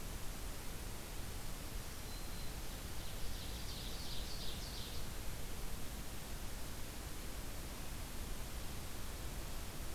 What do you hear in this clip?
Black-throated Green Warbler, Ovenbird